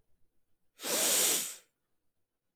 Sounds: Sniff